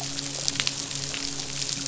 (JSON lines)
{"label": "biophony, midshipman", "recorder": "SoundTrap 500"}